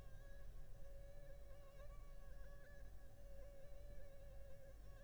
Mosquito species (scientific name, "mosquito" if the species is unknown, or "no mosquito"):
Anopheles funestus s.s.